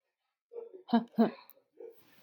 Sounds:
Laughter